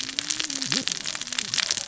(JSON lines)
{"label": "biophony, cascading saw", "recorder": "SoundTrap 600 or HydroMoth"}